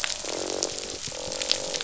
{"label": "biophony, croak", "recorder": "SoundTrap 500"}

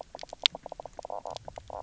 {"label": "biophony, knock croak", "recorder": "SoundTrap 300"}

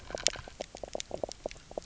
{"label": "biophony, knock croak", "recorder": "SoundTrap 300"}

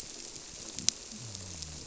{"label": "biophony", "recorder": "SoundTrap 300"}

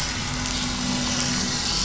{"label": "anthrophony, boat engine", "recorder": "SoundTrap 500"}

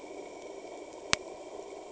{"label": "anthrophony, boat engine", "recorder": "HydroMoth"}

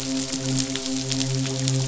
{"label": "biophony, midshipman", "recorder": "SoundTrap 500"}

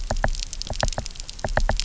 {"label": "biophony, knock", "recorder": "SoundTrap 300"}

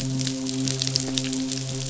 {"label": "biophony, midshipman", "recorder": "SoundTrap 500"}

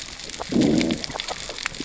{"label": "biophony, growl", "recorder": "SoundTrap 600 or HydroMoth"}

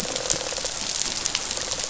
{"label": "biophony", "recorder": "SoundTrap 500"}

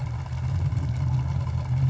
{"label": "anthrophony, boat engine", "recorder": "SoundTrap 500"}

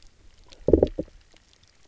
{"label": "biophony, low growl", "recorder": "SoundTrap 300"}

